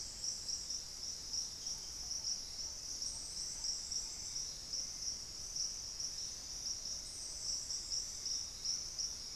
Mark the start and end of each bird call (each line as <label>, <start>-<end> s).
Black-tailed Trogon (Trogon melanurus), 1.2-3.9 s